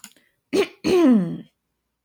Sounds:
Throat clearing